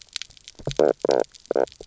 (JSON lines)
{"label": "biophony, knock croak", "recorder": "SoundTrap 300"}